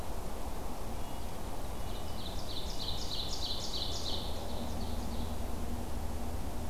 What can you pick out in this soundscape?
Red-breasted Nuthatch, Ovenbird